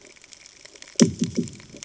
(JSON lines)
{"label": "anthrophony, bomb", "recorder": "HydroMoth"}